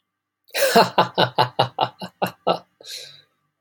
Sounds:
Laughter